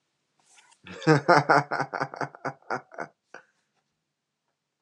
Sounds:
Laughter